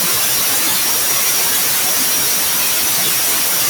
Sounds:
Throat clearing